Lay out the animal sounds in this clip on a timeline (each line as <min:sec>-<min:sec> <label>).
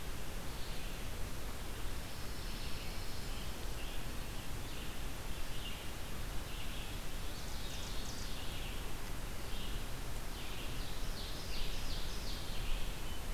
0:00.0-0:13.3 Red-eyed Vireo (Vireo olivaceus)
0:01.9-0:03.7 Pine Warbler (Setophaga pinus)
0:07.1-0:08.9 Ovenbird (Seiurus aurocapilla)
0:10.4-0:12.6 Ovenbird (Seiurus aurocapilla)